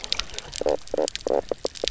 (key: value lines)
label: biophony, knock croak
recorder: SoundTrap 300